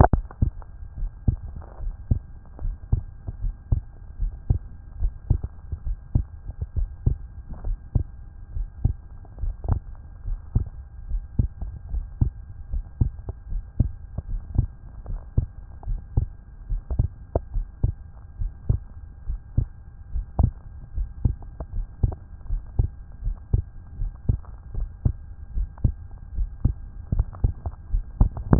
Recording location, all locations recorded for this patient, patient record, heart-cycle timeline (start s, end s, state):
pulmonary valve (PV)
pulmonary valve (PV)+tricuspid valve (TV)+mitral valve (MV)
#Age: Adolescent
#Sex: Male
#Height: 173.0 cm
#Weight: 46.8 kg
#Pregnancy status: False
#Murmur: Present
#Murmur locations: mitral valve (MV)
#Most audible location: mitral valve (MV)
#Systolic murmur timing: Early-systolic
#Systolic murmur shape: Plateau
#Systolic murmur grading: I/VI
#Systolic murmur pitch: Low
#Systolic murmur quality: Harsh
#Diastolic murmur timing: nan
#Diastolic murmur shape: nan
#Diastolic murmur grading: nan
#Diastolic murmur pitch: nan
#Diastolic murmur quality: nan
#Outcome: Abnormal
#Campaign: 2014 screening campaign
0.00	0.79	unannotated
0.79	0.98	diastole
0.98	1.10	S1
1.10	1.26	systole
1.26	1.38	S2
1.38	1.82	diastole
1.82	1.94	S1
1.94	2.10	systole
2.10	2.20	S2
2.20	2.64	diastole
2.64	2.76	S1
2.76	2.92	systole
2.92	3.02	S2
3.02	3.42	diastole
3.42	3.54	S1
3.54	3.70	systole
3.70	3.82	S2
3.82	4.20	diastole
4.20	4.32	S1
4.32	4.48	systole
4.48	4.60	S2
4.60	5.00	diastole
5.00	5.12	S1
5.12	5.28	systole
5.28	5.40	S2
5.40	5.86	diastole
5.86	5.98	S1
5.98	6.14	systole
6.14	6.26	S2
6.26	6.76	diastole
6.76	6.88	S1
6.88	7.06	systole
7.06	7.18	S2
7.18	7.66	diastole
7.66	7.78	S1
7.78	7.94	systole
7.94	8.06	S2
8.06	8.56	diastole
8.56	8.68	S1
8.68	8.84	systole
8.84	8.94	S2
8.94	9.42	diastole
9.42	9.54	S1
9.54	9.68	systole
9.68	9.80	S2
9.80	10.26	diastole
10.26	10.38	S1
10.38	10.54	systole
10.54	10.66	S2
10.66	11.10	diastole
11.10	11.22	S1
11.22	11.38	systole
11.38	11.50	S2
11.50	11.92	diastole
11.92	12.04	S1
12.04	12.20	systole
12.20	12.32	S2
12.32	12.72	diastole
12.72	12.84	S1
12.84	13.00	systole
13.00	13.12	S2
13.12	13.50	diastole
13.50	13.62	S1
13.62	13.78	systole
13.78	13.90	S2
13.90	14.30	diastole
14.30	14.42	S1
14.42	14.56	systole
14.56	14.68	S2
14.68	15.08	diastole
15.08	15.20	S1
15.20	15.36	systole
15.36	15.48	S2
15.48	15.88	diastole
15.88	16.00	S1
16.00	16.16	systole
16.16	16.28	S2
16.28	16.70	diastole
16.70	16.82	S1
16.82	16.98	systole
16.98	17.08	S2
17.08	17.54	diastole
17.54	17.66	S1
17.66	17.82	systole
17.82	17.94	S2
17.94	18.40	diastole
18.40	18.52	S1
18.52	18.68	systole
18.68	18.80	S2
18.80	19.28	diastole
19.28	19.40	S1
19.40	19.56	systole
19.56	19.68	S2
19.68	20.14	diastole
20.14	20.26	S1
20.26	20.38	systole
20.38	20.52	S2
20.52	20.96	diastole
20.96	21.08	S1
21.08	21.24	systole
21.24	21.36	S2
21.36	21.74	diastole
21.74	21.86	S1
21.86	22.02	systole
22.02	22.14	S2
22.14	22.50	diastole
22.50	22.62	S1
22.62	22.78	systole
22.78	22.90	S2
22.90	23.24	diastole
23.24	23.36	S1
23.36	23.52	systole
23.52	23.64	S2
23.64	24.00	diastole
24.00	24.12	S1
24.12	24.28	systole
24.28	24.40	S2
24.40	24.76	diastole
24.76	24.88	S1
24.88	25.04	systole
25.04	25.14	S2
25.14	25.56	diastole
25.56	25.68	S1
25.68	25.84	systole
25.84	25.94	S2
25.94	26.36	diastole
26.36	26.48	S1
26.48	26.64	systole
26.64	26.74	S2
26.74	27.12	diastole
27.12	28.59	unannotated